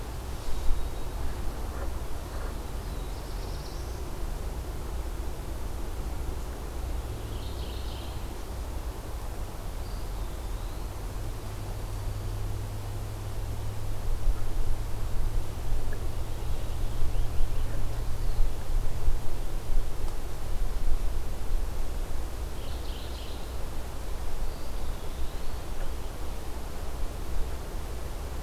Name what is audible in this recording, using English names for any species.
Black-throated Blue Warbler, Mourning Warbler, Eastern Wood-Pewee